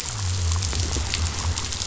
{"label": "biophony", "recorder": "SoundTrap 500"}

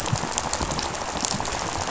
{"label": "biophony, rattle", "recorder": "SoundTrap 500"}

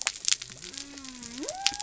{"label": "biophony", "recorder": "SoundTrap 300"}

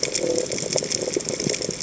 {"label": "biophony", "recorder": "HydroMoth"}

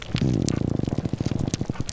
{"label": "biophony, grouper groan", "recorder": "SoundTrap 300"}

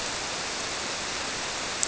{"label": "biophony", "recorder": "SoundTrap 300"}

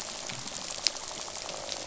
{"label": "biophony, croak", "recorder": "SoundTrap 500"}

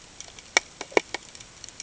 {"label": "ambient", "recorder": "HydroMoth"}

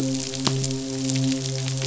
{"label": "biophony, midshipman", "recorder": "SoundTrap 500"}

